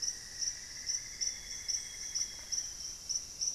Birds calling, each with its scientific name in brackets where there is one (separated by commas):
Amazonian Grosbeak (Cyanoloxia rothschildii), Cinnamon-throated Woodcreeper (Dendrexetastes rufigula), Buff-breasted Wren (Cantorchilus leucotis)